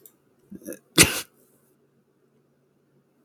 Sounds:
Sneeze